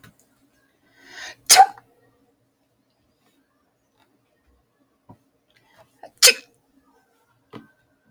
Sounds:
Sneeze